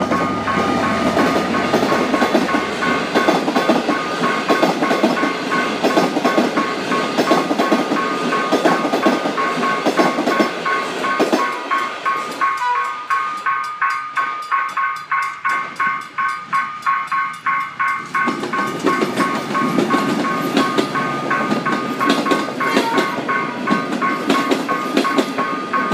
Does the train slow down before going fast again?
yes